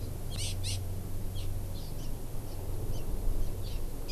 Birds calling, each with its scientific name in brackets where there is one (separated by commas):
Hawaii Amakihi (Chlorodrepanis virens)